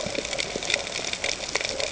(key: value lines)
label: ambient
recorder: HydroMoth